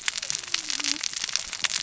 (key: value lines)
label: biophony, cascading saw
recorder: SoundTrap 600 or HydroMoth